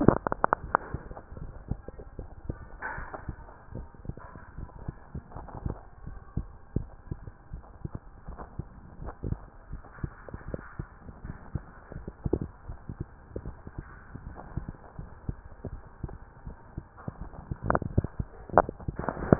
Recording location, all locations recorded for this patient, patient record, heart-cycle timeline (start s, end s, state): mitral valve (MV)
pulmonary valve (PV)+tricuspid valve (TV)+mitral valve (MV)
#Age: Child
#Sex: Male
#Height: 149.0 cm
#Weight: 36.1 kg
#Pregnancy status: False
#Murmur: Absent
#Murmur locations: nan
#Most audible location: nan
#Systolic murmur timing: nan
#Systolic murmur shape: nan
#Systolic murmur grading: nan
#Systolic murmur pitch: nan
#Systolic murmur quality: nan
#Diastolic murmur timing: nan
#Diastolic murmur shape: nan
#Diastolic murmur grading: nan
#Diastolic murmur pitch: nan
#Diastolic murmur quality: nan
#Outcome: Abnormal
#Campaign: 2014 screening campaign
0.00	1.38	unannotated
1.38	1.52	S1
1.52	1.64	systole
1.64	1.80	S2
1.80	2.16	diastole
2.16	2.30	S1
2.30	2.48	systole
2.48	2.60	S2
2.60	2.96	diastole
2.96	3.08	S1
3.08	3.24	systole
3.24	3.36	S2
3.36	3.72	diastole
3.72	3.88	S1
3.88	4.06	systole
4.06	4.16	S2
4.16	4.56	diastole
4.56	4.70	S1
4.70	4.86	systole
4.86	4.98	S2
4.98	5.36	diastole
5.36	5.48	S1
5.48	5.64	systole
5.64	5.78	S2
5.78	6.06	diastole
6.06	6.20	S1
6.20	6.34	systole
6.34	6.48	S2
6.48	6.76	diastole
6.76	6.92	S1
6.92	7.10	systole
7.10	7.20	S2
7.20	7.52	diastole
7.52	7.62	S1
7.62	7.80	systole
7.80	7.92	S2
7.92	8.26	diastole
8.26	8.40	S1
8.40	8.56	systole
8.56	8.66	S2
8.66	9.00	diastole
9.00	9.14	S1
9.14	9.28	systole
9.28	9.42	S2
9.42	9.70	diastole
9.70	9.82	S1
9.82	10.02	systole
10.02	10.12	S2
10.12	10.46	diastole
10.46	10.60	S1
10.60	10.78	systole
10.78	10.88	S2
10.88	11.22	diastole
11.22	11.36	S1
11.36	11.54	systole
11.54	11.64	S2
11.64	11.96	diastole
11.96	12.06	S1
12.06	12.26	systole
12.26	12.40	S2
12.40	12.68	diastole
12.68	12.78	S1
12.78	12.98	systole
12.98	13.10	S2
13.10	13.44	diastole
13.44	13.56	S1
13.56	13.76	systole
13.76	13.86	S2
13.86	14.22	diastole
14.22	14.38	S1
14.38	14.54	systole
14.54	14.70	S2
14.70	14.98	diastole
14.98	15.10	S1
15.10	15.24	systole
15.24	15.36	S2
15.36	15.66	diastole
15.66	15.82	S1
15.82	16.02	systole
16.02	16.12	S2
16.12	16.46	diastole
16.46	16.56	S1
16.56	16.76	systole
16.76	16.86	S2
16.86	19.39	unannotated